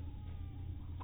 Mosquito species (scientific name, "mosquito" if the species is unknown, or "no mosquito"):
mosquito